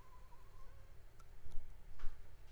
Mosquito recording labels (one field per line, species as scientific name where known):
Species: Anopheles arabiensis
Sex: female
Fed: unfed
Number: one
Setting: cup